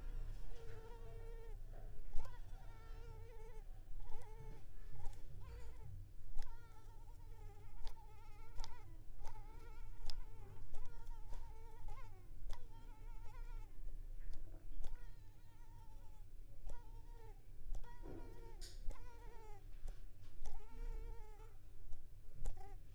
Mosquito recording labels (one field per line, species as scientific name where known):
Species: Culex pipiens complex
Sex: female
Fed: unfed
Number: one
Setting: cup